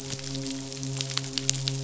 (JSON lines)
{"label": "biophony, midshipman", "recorder": "SoundTrap 500"}